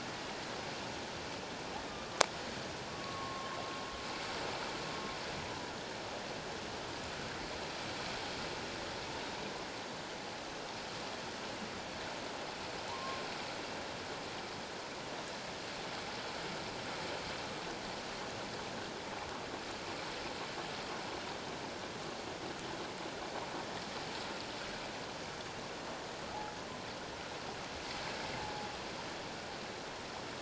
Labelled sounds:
1.9	2.2	humpback whale, 1.1 to 1.2 kHz
2.9	3.5	humpback whale, 1.0 to 1.2 kHz
12.9	13.2	humpback whale, 0.91 to 1.1 kHz
28.4	28.7	humpback whale, 0.78 to 0.91 kHz

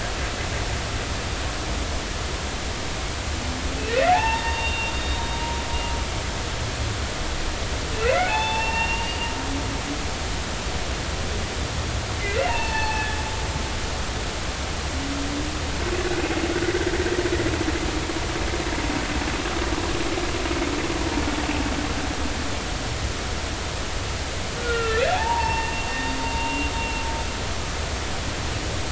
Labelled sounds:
4.1	5.2	humpback whale, 0.80 to 3.8 kHz
8.0	9.3	humpback whale, 0.80 to 4.7 kHz
12.2	13.2	humpback whale, 0.80 to 4.5 kHz
24.6	26.0	humpback whale, 0.80 to 2.8 kHz
26.4	26.7	humpback whale, 2.7 to 2.8 kHz

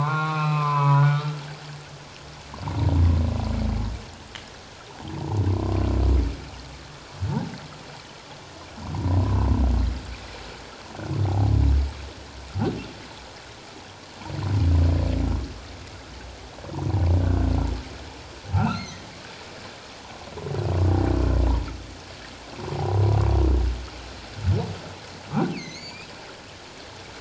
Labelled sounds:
1.6	1.9	humpback whale, 1.5 to 1.9 kHz
8.9	9.2	humpback whale, 0.78 to 1.1 kHz
11.2	11.5	humpback whale, 0.78 to 0.88 kHz
17.2	17.5	humpback whale, 1.4 to 1.6 kHz
18.5	19.1	humpback whale, 1.2 to 6.5 kHz
25.5	26.1	humpback whale, 1.9 to 6.9 kHz

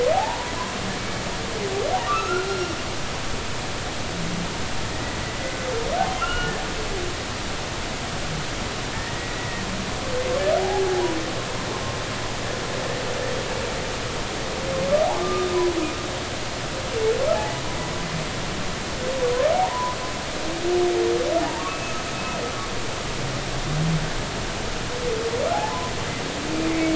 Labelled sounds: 0.1	0.5	humpback whale, 0.80 to 1.0 kHz
2.1	2.7	humpback whale, 1.1 to 1.5 kHz
4.9	5.2	humpback whale, 1.8 to 2.0 kHz
6.2	6.5	humpback whale, 1.3 to 3.0 kHz
8.9	9.6	humpback whale, 1.8 to 2.0 kHz
10.6	10.8	humpback whale, 0.80 to 0.90 kHz
15.2	15.5	humpback whale, 1.15 to 1.25 kHz
19.5	20.0	humpback whale, 0.80 to 1.1 kHz
21.7	22.1	humpback whale, 2.5 to 6.5 kHz
25.5	25.9	humpback whale, 0.80 to 1.1 kHz
26.7	26.9	humpback whale, 2.0 to 2.4 kHz

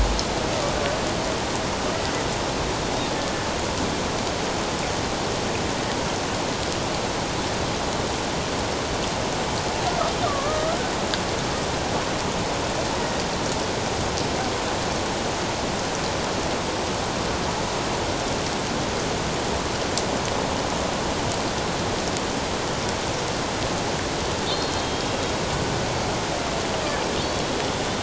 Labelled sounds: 10.2	10.8	killer whale, Bigg's (transient), 1.0 to 1.4 kHz
24.7	25.1	killer whale, Bigg's (transient), 3.1 to 3.3 kHz
27.7	28.0	killer whale, Bigg's (transient), 3.4 to 3.6 kHz

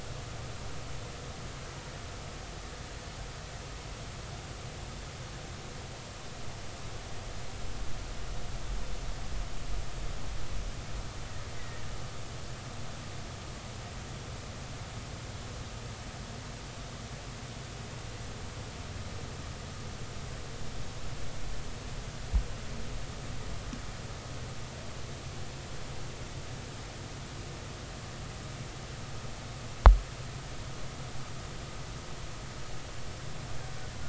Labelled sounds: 11.6	11.8	killer whale, Bigg's (transient), 1.8 to 2.1 kHz

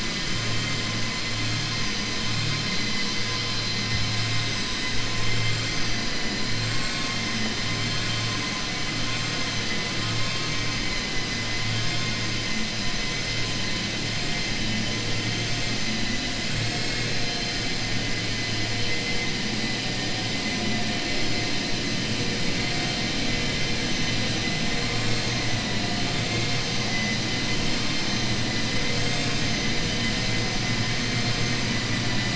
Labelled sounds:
16.5	17.1	vessel noise, 1.1 to 2.6 kHz

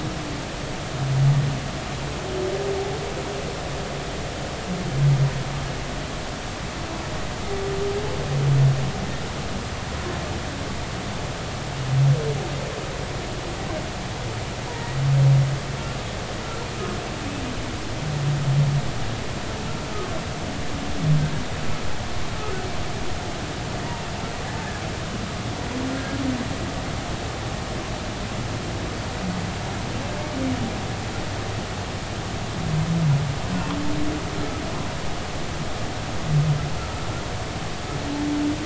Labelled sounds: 14.7	15.0	humpback whale, 0.90 to 2.0 kHz
23.9	24.1	humpback whale, 2.6 to 2.8 kHz

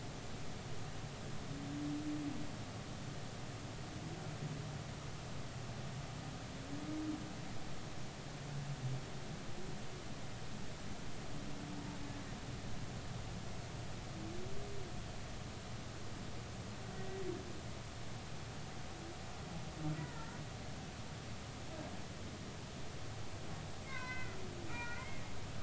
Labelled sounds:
16.9	17.2	humpback whale, 1.8 to 2.0 kHz
20.0	20.3	humpback whale, 0.86 to 2.0 kHz
23.8	24.4	humpback whale, 0.96 to 4.1 kHz
24.7	25.2	humpback whale, 1.2 to 2.5 kHz

